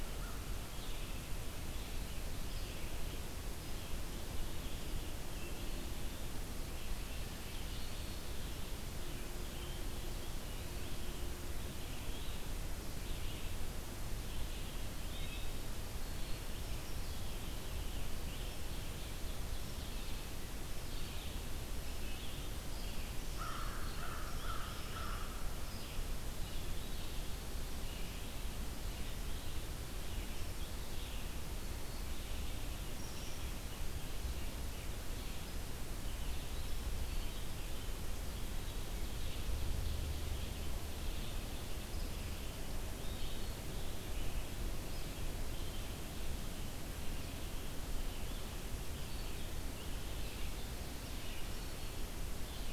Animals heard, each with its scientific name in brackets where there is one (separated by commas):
Ovenbird (Seiurus aurocapilla), Black-throated Green Warbler (Setophaga virens), Wood Thrush (Hylocichla mustelina), American Crow (Corvus brachyrhynchos), Red-eyed Vireo (Vireo olivaceus)